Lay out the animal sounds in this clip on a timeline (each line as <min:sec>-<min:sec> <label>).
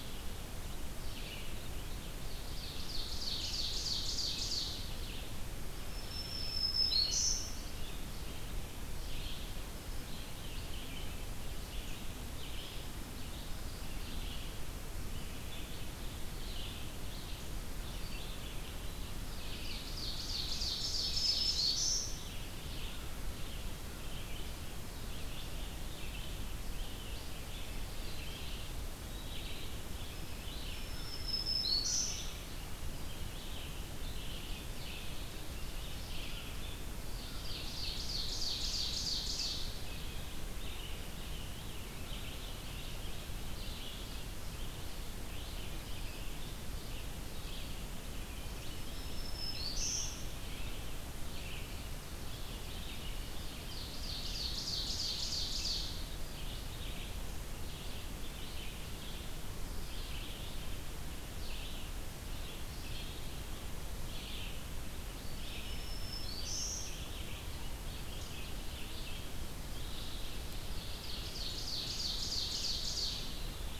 0:00.0-0:03.8 Red-eyed Vireo (Vireo olivaceus)
0:02.5-0:05.0 Ovenbird (Seiurus aurocapilla)
0:04.9-1:10.3 Red-eyed Vireo (Vireo olivaceus)
0:05.4-0:08.1 Black-throated Green Warbler (Setophaga virens)
0:19.0-0:21.7 Ovenbird (Seiurus aurocapilla)
0:20.4-0:22.3 Black-throated Green Warbler (Setophaga virens)
0:30.1-0:32.5 Black-throated Green Warbler (Setophaga virens)
0:37.1-0:39.8 Ovenbird (Seiurus aurocapilla)
0:48.8-0:50.5 Black-throated Green Warbler (Setophaga virens)
0:52.6-0:56.2 Ovenbird (Seiurus aurocapilla)
1:05.4-1:07.1 Black-throated Green Warbler (Setophaga virens)
1:10.0-1:13.6 Ovenbird (Seiurus aurocapilla)